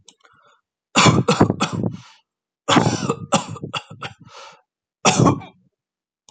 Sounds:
Cough